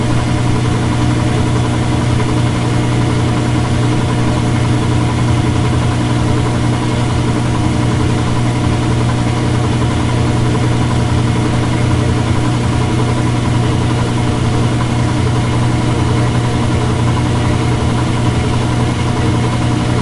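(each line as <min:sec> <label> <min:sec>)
0:00.0 A washing machine is running. 0:20.0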